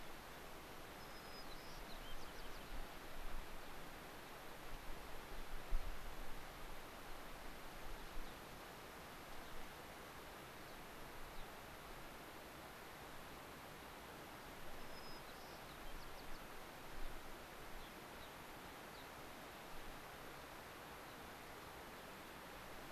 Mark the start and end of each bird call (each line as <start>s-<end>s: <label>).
0.9s-2.7s: White-crowned Sparrow (Zonotrichia leucophrys)
8.2s-8.4s: Gray-crowned Rosy-Finch (Leucosticte tephrocotis)
9.3s-9.5s: Gray-crowned Rosy-Finch (Leucosticte tephrocotis)
10.6s-10.8s: Gray-crowned Rosy-Finch (Leucosticte tephrocotis)
11.3s-11.5s: Gray-crowned Rosy-Finch (Leucosticte tephrocotis)
14.7s-16.4s: White-crowned Sparrow (Zonotrichia leucophrys)
16.9s-17.1s: Gray-crowned Rosy-Finch (Leucosticte tephrocotis)
17.7s-18.3s: Gray-crowned Rosy-Finch (Leucosticte tephrocotis)
18.9s-19.1s: Gray-crowned Rosy-Finch (Leucosticte tephrocotis)
21.0s-21.2s: Gray-crowned Rosy-Finch (Leucosticte tephrocotis)